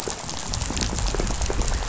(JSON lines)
{"label": "biophony, rattle", "recorder": "SoundTrap 500"}